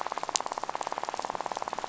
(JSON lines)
{"label": "biophony, rattle", "recorder": "SoundTrap 500"}